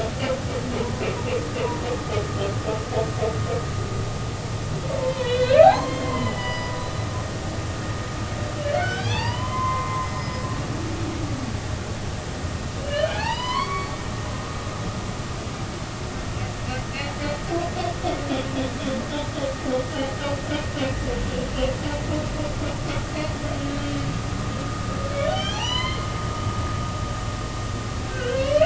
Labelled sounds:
5.0	6.8	humpback whale, 0.80 to 5.0 kHz
8.7	10.5	humpback whale, 0.80 to 5.2 kHz
12.8	13.9	humpback whale, 0.80 to 5.2 kHz
19.9	20.1	humpback whale, 2.8 to 3.2 kHz
23.8	24.1	humpback whale, 3.0 to 3.2 kHz
25.2	26.1	humpback whale, 0.80 to 6.1 kHz
28.0	28.6	humpback whale, 1.4 to 3.2 kHz

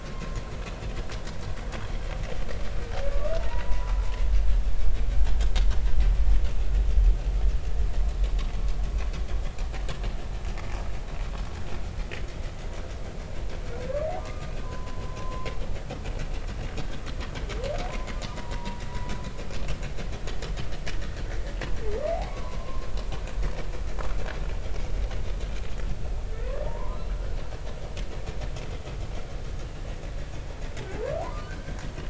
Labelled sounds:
3.1	3.9	humpback whale, 0.86 to 1.3 kHz
14.2	15.5	humpback whale, 0.86 to 1.3 kHz
18.3	18.8	humpback whale, 0.90 to 1.3 kHz
22.3	22.9	humpback whale, 0.93 to 1.2 kHz
26.4	27.4	humpback whale, 0.86 to 1.5 kHz
31.0	31.8	humpback whale, 0.80 to 1.6 kHz

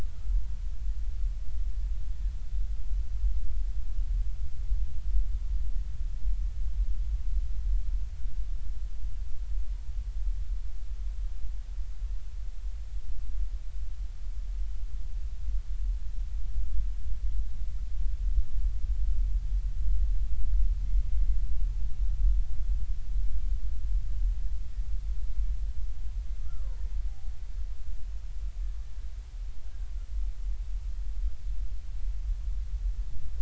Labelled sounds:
26.4	26.8	killer whale, Bigg's (transient), 0.90 to 1.4 kHz

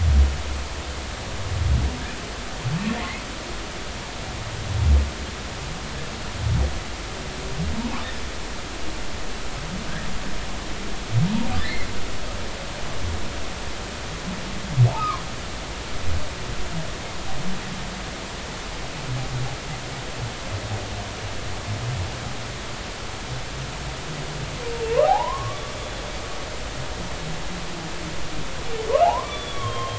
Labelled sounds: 11.6	11.9	humpback whale, 1.7 to 2.2 kHz
14.9	15.2	humpback whale, 0.96 to 1.3 kHz
24.9	25.6	humpback whale, 0.80 to 1.3 kHz
29.0	29.9	humpback whale, 0.80 to 5.9 kHz

